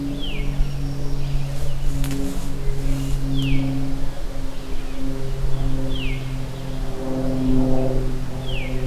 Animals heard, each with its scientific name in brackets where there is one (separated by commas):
Black-capped Chickadee (Poecile atricapillus), Veery (Catharus fuscescens)